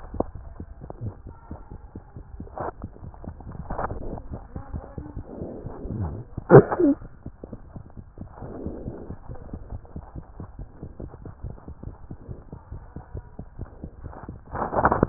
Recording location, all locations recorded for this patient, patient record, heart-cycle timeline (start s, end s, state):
mitral valve (MV)
aortic valve (AV)+pulmonary valve (PV)+tricuspid valve (TV)+mitral valve (MV)
#Age: Infant
#Sex: Male
#Height: 87.0 cm
#Weight: 12.5 kg
#Pregnancy status: False
#Murmur: Absent
#Murmur locations: nan
#Most audible location: nan
#Systolic murmur timing: nan
#Systolic murmur shape: nan
#Systolic murmur grading: nan
#Systolic murmur pitch: nan
#Systolic murmur quality: nan
#Diastolic murmur timing: nan
#Diastolic murmur shape: nan
#Diastolic murmur grading: nan
#Diastolic murmur pitch: nan
#Diastolic murmur quality: nan
#Outcome: Abnormal
#Campaign: 2015 screening campaign
0.00	8.73	unannotated
8.73	8.82	diastole
8.82	8.94	S1
8.94	9.08	systole
9.08	9.16	S2
9.16	9.28	diastole
9.28	9.37	S1
9.37	9.48	systole
9.48	9.60	S2
9.60	9.68	diastole
9.68	9.82	S1
9.82	9.95	systole
9.95	10.02	S2
10.02	10.14	diastole
10.14	10.21	S1
10.21	10.38	systole
10.38	10.48	S2
10.48	10.58	diastole
10.58	10.68	S1
10.68	10.81	systole
10.81	10.90	S2
10.90	10.99	diastole
10.99	11.08	S1
11.08	11.24	systole
11.24	11.34	S2
11.34	11.42	diastole
11.42	11.54	S1
11.54	11.67	systole
11.67	11.75	S2
11.75	11.84	diastole
11.84	11.90	S1
11.90	12.06	systole
12.06	12.18	S2
12.18	12.26	diastole
12.26	12.38	S1
12.38	12.52	systole
12.52	12.59	S2
12.59	12.70	diastole
12.70	12.79	S1
12.79	12.92	systole
12.92	13.04	S2
13.04	13.14	diastole
13.14	13.28	S1
13.28	13.38	systole
13.38	13.47	S2
13.47	13.57	diastole
13.57	13.65	S1
13.65	15.09	unannotated